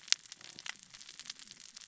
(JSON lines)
{"label": "biophony, cascading saw", "recorder": "SoundTrap 600 or HydroMoth"}